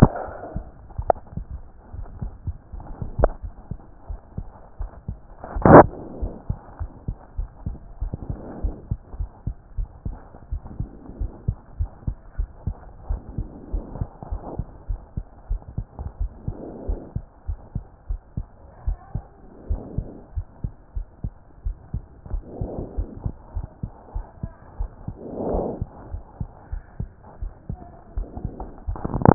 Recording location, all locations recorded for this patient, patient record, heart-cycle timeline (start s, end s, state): aortic valve (AV)
aortic valve (AV)+pulmonary valve (PV)+tricuspid valve (TV)+mitral valve (MV)
#Age: Child
#Sex: Male
#Height: 103.0 cm
#Weight: 18.8 kg
#Pregnancy status: False
#Murmur: Absent
#Murmur locations: nan
#Most audible location: nan
#Systolic murmur timing: nan
#Systolic murmur shape: nan
#Systolic murmur grading: nan
#Systolic murmur pitch: nan
#Systolic murmur quality: nan
#Diastolic murmur timing: nan
#Diastolic murmur shape: nan
#Diastolic murmur grading: nan
#Diastolic murmur pitch: nan
#Diastolic murmur quality: nan
#Outcome: Abnormal
#Campaign: 2014 screening campaign
0.00	6.80	unannotated
6.80	6.90	S1
6.90	7.06	systole
7.06	7.16	S2
7.16	7.38	diastole
7.38	7.48	S1
7.48	7.66	systole
7.66	7.76	S2
7.76	8.00	diastole
8.00	8.12	S1
8.12	8.28	systole
8.28	8.38	S2
8.38	8.62	diastole
8.62	8.74	S1
8.74	8.90	systole
8.90	8.98	S2
8.98	9.18	diastole
9.18	9.30	S1
9.30	9.46	systole
9.46	9.54	S2
9.54	9.78	diastole
9.78	9.88	S1
9.88	10.06	systole
10.06	10.16	S2
10.16	10.50	diastole
10.50	10.62	S1
10.62	10.78	systole
10.78	10.88	S2
10.88	11.20	diastole
11.20	11.32	S1
11.32	11.46	systole
11.46	11.56	S2
11.56	11.78	diastole
11.78	11.90	S1
11.90	12.06	systole
12.06	12.16	S2
12.16	12.38	diastole
12.38	12.50	S1
12.50	12.66	systole
12.66	12.76	S2
12.76	13.08	diastole
13.08	13.22	S1
13.22	13.38	systole
13.38	13.48	S2
13.48	13.72	diastole
13.72	13.84	S1
13.84	13.98	systole
13.98	14.08	S2
14.08	14.30	diastole
14.30	14.42	S1
14.42	14.56	systole
14.56	14.66	S2
14.66	14.88	diastole
14.88	15.00	S1
15.00	15.16	systole
15.16	15.24	S2
15.24	15.50	diastole
15.50	15.62	S1
15.62	15.76	systole
15.76	15.86	S2
15.86	16.20	diastole
16.20	16.32	S1
16.32	16.46	systole
16.46	16.56	S2
16.56	16.88	diastole
16.88	17.00	S1
17.00	17.14	systole
17.14	17.24	S2
17.24	17.48	diastole
17.48	17.60	S1
17.60	17.74	systole
17.74	17.84	S2
17.84	18.08	diastole
18.08	18.20	S1
18.20	18.36	systole
18.36	18.46	S2
18.46	18.86	diastole
18.86	18.98	S1
18.98	19.14	systole
19.14	19.24	S2
19.24	19.68	diastole
19.68	19.82	S1
19.82	19.96	systole
19.96	20.06	S2
20.06	20.36	diastole
20.36	20.46	S1
20.46	20.64	systole
20.64	20.72	S2
20.72	20.96	diastole
20.96	21.06	S1
21.06	21.24	systole
21.24	21.32	S2
21.32	21.64	diastole
21.64	21.76	S1
21.76	21.94	systole
21.94	22.02	S2
22.02	22.32	diastole
22.32	22.44	S1
22.44	22.60	systole
22.60	22.70	S2
22.70	22.96	diastole
22.96	23.08	S1
23.08	23.24	systole
23.24	23.34	S2
23.34	23.56	diastole
23.56	23.68	S1
23.68	23.82	systole
23.82	23.92	S2
23.92	24.14	diastole
24.14	24.26	S1
24.26	24.42	systole
24.42	24.52	S2
24.52	24.78	diastole
24.78	24.90	S1
24.90	25.06	systole
25.06	25.16	S2
25.16	25.54	diastole
25.54	25.66	S1
25.66	25.80	systole
25.80	25.88	S2
25.88	26.12	diastole
26.12	26.22	S1
26.22	26.40	systole
26.40	26.48	S2
26.48	26.72	diastole
26.72	26.82	S1
26.82	27.00	systole
27.00	27.10	S2
27.10	27.42	diastole
27.42	27.52	S1
27.52	27.68	systole
27.68	27.80	S2
27.80	28.16	diastole
28.16	29.34	unannotated